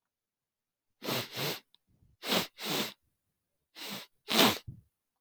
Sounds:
Sniff